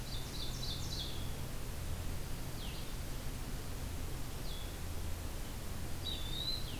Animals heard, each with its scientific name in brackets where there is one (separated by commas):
Blue-headed Vireo (Vireo solitarius), Eastern Wood-Pewee (Contopus virens), Ovenbird (Seiurus aurocapilla)